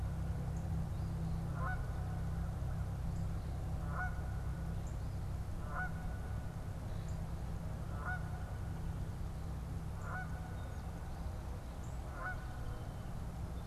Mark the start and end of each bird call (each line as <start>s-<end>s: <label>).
0.0s-13.7s: Canada Goose (Branta canadensis)
0.3s-0.8s: Northern Cardinal (Cardinalis cardinalis)
4.5s-13.7s: Northern Cardinal (Cardinalis cardinalis)
6.3s-7.6s: Common Grackle (Quiscalus quiscula)
11.7s-13.5s: Song Sparrow (Melospiza melodia)